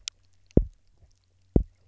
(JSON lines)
{"label": "biophony, double pulse", "recorder": "SoundTrap 300"}